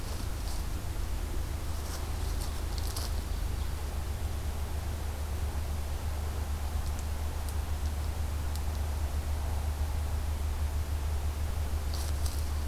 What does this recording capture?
Ovenbird